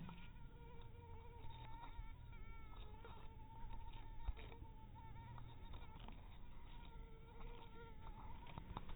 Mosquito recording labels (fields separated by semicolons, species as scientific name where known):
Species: mosquito; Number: one; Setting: cup